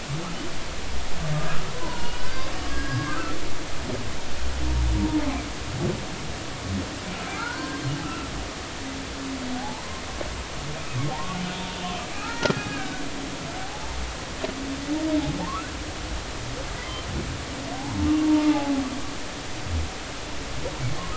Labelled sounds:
1.3	2.2	humpback whale, 0.86 to 4.4 kHz
2.7	3.4	humpback whale, 0.99 to 5.0 kHz
7.3	8.3	humpback whale, 0.83 to 1.7 kHz
9.6	9.8	humpback whale, 0.80 to 1.0 kHz
11.1	11.4	humpback whale, 0.80 to 1.2 kHz
12.1	13.0	humpback whale, 1.2 to 2.0 kHz
13.6	13.9	humpback whale, 0.80 to 0.93 kHz
15.4	15.7	humpback whale, 0.80 to 1.6 kHz
18.2	18.8	humpback whale, 0.80 to 0.96 kHz

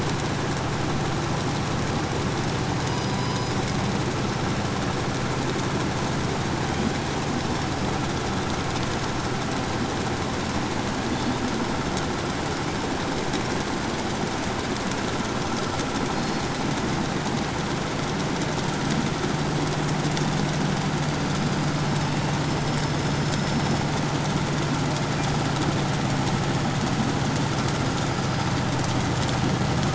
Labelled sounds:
2.4	3.9	killer whale, southern resident, J pod, call S01, 0.61 to 7.0 kHz
6.4	7.3	killer whale, 0.53 to 3.7 kHz
10.9	11.5	killer whale, 3.2 to 4.6 kHz
16.0	16.8	killer whale, 4.1 to 6.5 kHz
21.0	24.1	killer whale, 2.5 to 8.0 kHz
27.5	28.6	killer whale, 4.8 to 5.2 kHz

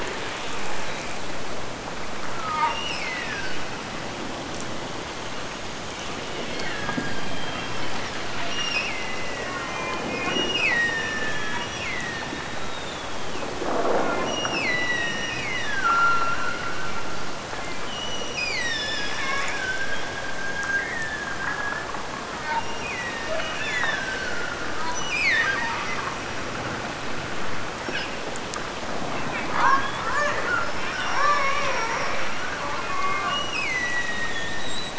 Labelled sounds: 2.7	3.7	killer whale, Bigg's (transient), Gulf of Alaska transient, 1.4 to 5.4 kHz
6.5	7.4	killer whale, Bigg's (transient), Gulf of Alaska transient, 1.4 to 4.5 kHz
8.5	12.4	killer whale, Bigg's (transient), Gulf of Alaska transient, 0.78 to 8.0 kHz
14.2	17.3	killer whale, Bigg's (transient), Gulf of Alaska transient, 1.2 to 8.0 kHz
17.9	21.9	killer whale, Bigg's (transient), Gulf of Alaska transient, 0.92 to 8.0 kHz
22.8	26.2	killer whale, Bigg's (transient), Gulf of Alaska transient, 0.75 to 6.1 kHz
30.8	32.7	killer whale, Bigg's (transient), Gulf of Alaska transient, 0.24 to 2.6 kHz
33.3	34.9	killer whale, Bigg's (transient), Gulf of Alaska transient, 1.7 to 5.9 kHz

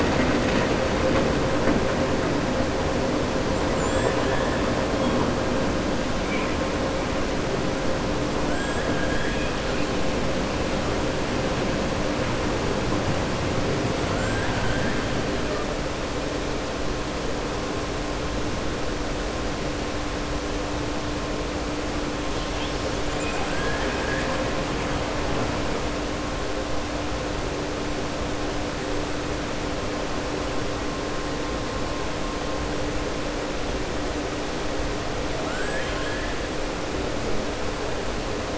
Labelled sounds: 8.9	9.5	killer whale, southern resident, 1.6 to 3.4 kHz
14.0	15.0	killer whale, southern resident, 0.70 to 3.2 kHz
22.3	24.5	killer whale, southern resident, 0.54 to 5.6 kHz
35.4	36.3	killer whale, southern resident, 0.67 to 7.8 kHz

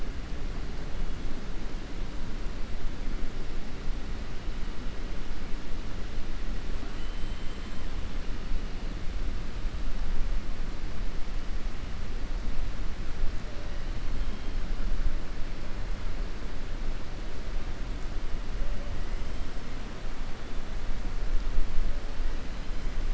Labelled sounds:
6.9	7.8	killer whale, 2.0 to 4.1 kHz

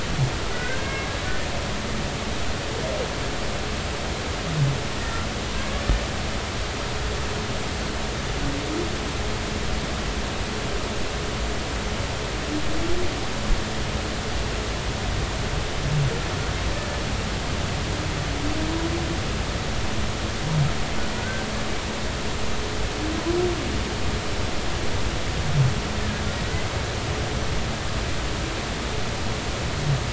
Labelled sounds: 0.5	1.1	humpback whale, 1.4 to 2.2 kHz
21.2	21.5	humpback whale, 1.4 to 1.6 kHz
26.0	26.3	humpback whale, 1.6 to 1.8 kHz

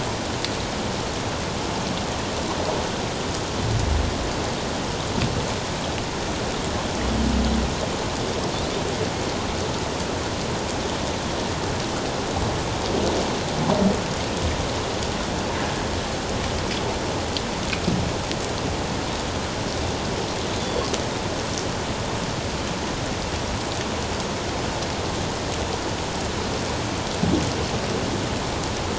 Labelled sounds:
20.6	20.9	Pacific white-sided dolphin, 3.3 to 3.6 kHz

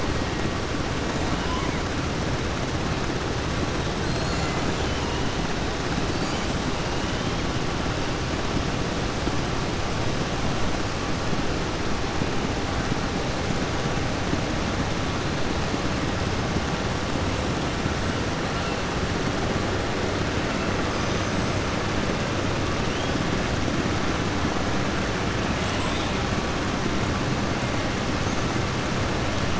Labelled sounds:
1.4	1.8	killer whale, southern resident, 0.97 to 3.3 kHz

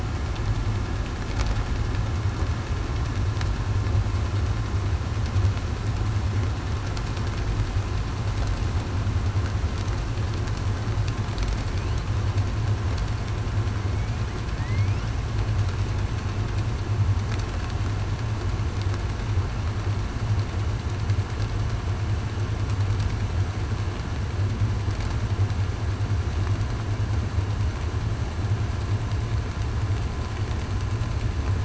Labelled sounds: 14.6	15.0	killer whale, southern resident, 1.8 to 2.8 kHz

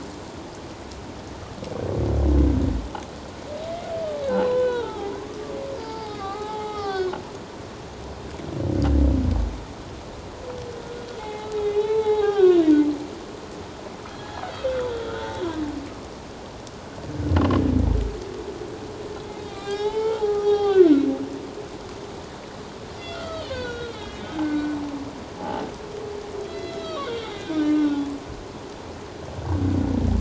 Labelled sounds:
4.2	5.1	humpback whale, 0.78 to 4.1 kHz
5.8	7.2	humpback whale, 0.78 to 5.1 kHz
11.2	12.6	humpback whale, 0.78 to 4.0 kHz
14.2	14.5	humpback whale, 1.6 to 1.8 kHz
14.9	15.2	humpback whale, 1.2 to 1.6 kHz
19.5	20.9	humpback whale, 0.78 to 3.9 kHz
23.0	24.8	humpback whale, 0.97 to 4.4 kHz
25.4	25.6	humpback whale, 0.78 to 0.91 kHz
26.5	28.1	humpback whale, 1.0 to 6.0 kHz

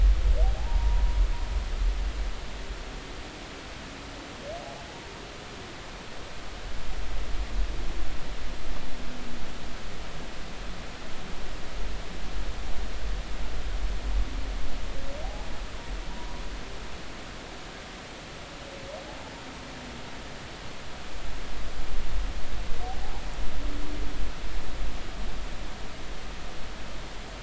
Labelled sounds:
16.1	16.4	humpback whale, 0.93 to 1.1 kHz

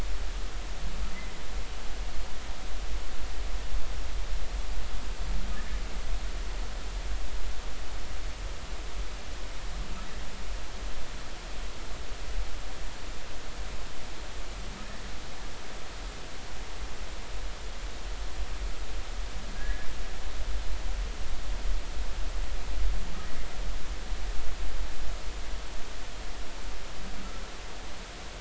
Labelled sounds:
1.1	1.4	humpback whale, 1.9 to 2.1 kHz
19.5	19.9	humpback whale, 1.5 to 2.0 kHz

